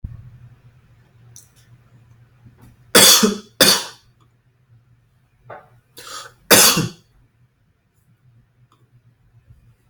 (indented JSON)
{
  "expert_labels": [
    {
      "quality": "good",
      "cough_type": "dry",
      "dyspnea": false,
      "wheezing": false,
      "stridor": false,
      "choking": false,
      "congestion": false,
      "nothing": true,
      "diagnosis": "upper respiratory tract infection",
      "severity": "mild"
    }
  ],
  "age": 36,
  "gender": "male",
  "respiratory_condition": false,
  "fever_muscle_pain": true,
  "status": "symptomatic"
}